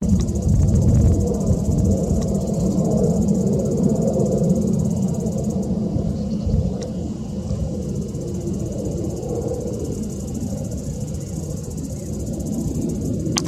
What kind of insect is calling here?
cicada